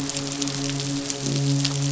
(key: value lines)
label: biophony, midshipman
recorder: SoundTrap 500

label: biophony
recorder: SoundTrap 500